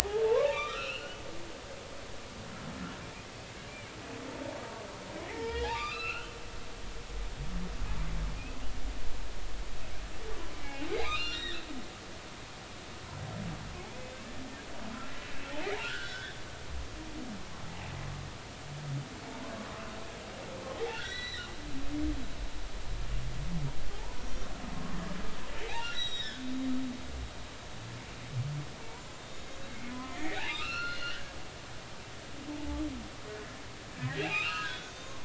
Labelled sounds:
0.4	1.2	humpback whale, 1.1 to 4.4 kHz
5.3	6.3	humpback whale, 0.80 to 4.3 kHz
10.6	11.6	humpback whale, 0.80 to 5.8 kHz
15.8	16.4	humpback whale, 1.3 to 3.2 kHz
20.9	21.5	humpback whale, 1.3 to 4.1 kHz
24.2	24.5	humpback whale, 5.4 to 5.8 kHz
25.6	26.5	humpback whale, 1.3 to 7.8 kHz
28.9	31.2	humpback whale, 0.90 to 7.0 kHz
32.0	32.4	humpback whale, 1.3 to 1.7 kHz
34.0	35.2	humpback whale, 0.93 to 6.6 kHz

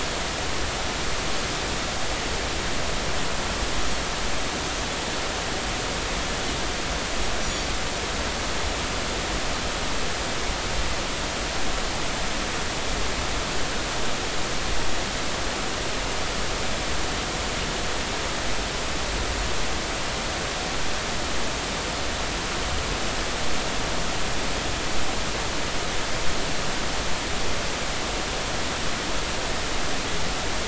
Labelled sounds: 7.4	7.7	Pacific white-sided dolphin, 5.6 to 6.0 kHz

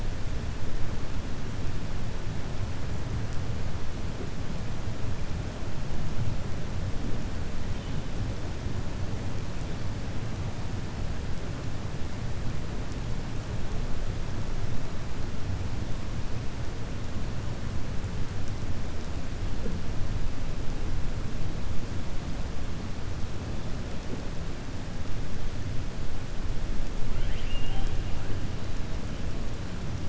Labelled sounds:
27.1	27.9	killer whale, 1.4 to 3.3 kHz

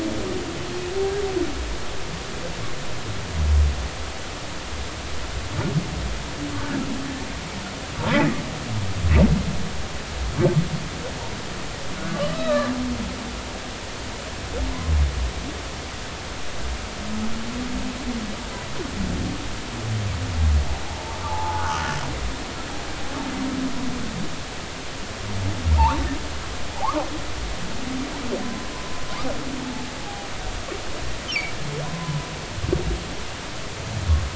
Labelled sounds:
12.3	12.7	humpback whale, 1.1 to 4.0 kHz
21.2	22.0	humpback whale, 0.80 to 1.5 kHz
25.8	26.0	humpback whale, 0.80 to 1.4 kHz
26.8	27.0	humpback whale, 0.80 to 1.3 kHz
29.6	30.3	humpback whale, 0.80 to 0.93 kHz
31.2	31.5	humpback whale, 2.0 to 3.4 kHz
31.9	32.3	humpback whale, 0.96 to 1.1 kHz

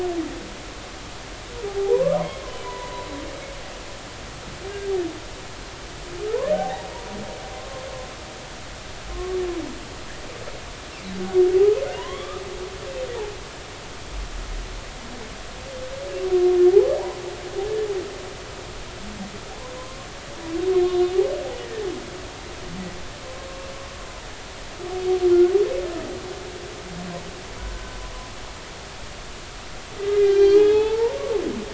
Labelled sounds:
1.9	3.1	humpback whale, 0.93 to 2.1 kHz
6.5	6.9	humpback whale, 0.80 to 0.99 kHz
7.6	7.9	humpback whale, 0.99 to 1.1 kHz
9.1	9.4	humpback whale, 1.0 to 1.2 kHz
11.9	12.4	humpback whale, 0.93 to 3.5 kHz
20.7	21.1	humpback whale, 3.6 to 4.0 kHz
27.6	28.0	humpback whale, 1.4 to 1.6 kHz
30.1	31.2	humpback whale, 0.80 to 4.1 kHz

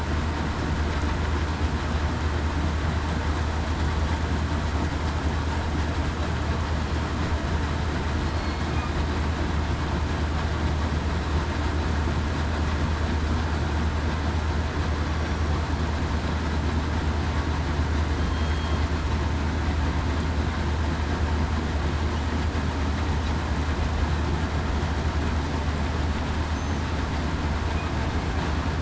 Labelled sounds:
8.2	8.6	killer whale, southern resident, 4.2 to 4.4 kHz
15.2	15.5	killer whale, southern resident, 5.6 to 5.7 kHz
18.2	18.8	killer whale, southern resident, 3.1 to 4.4 kHz

